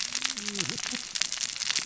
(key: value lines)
label: biophony, cascading saw
recorder: SoundTrap 600 or HydroMoth